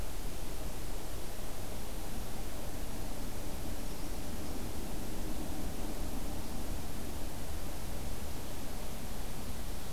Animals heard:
forest ambience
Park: Acadia National Park